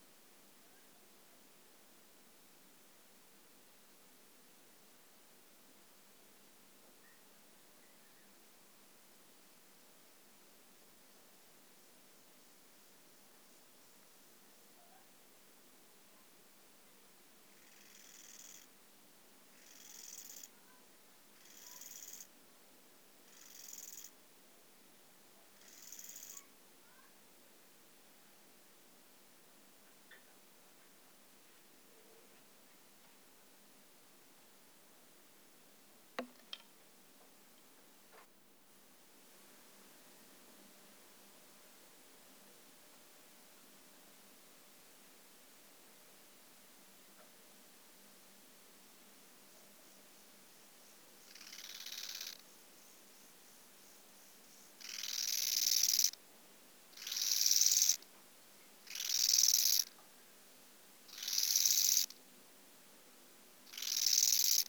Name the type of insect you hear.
orthopteran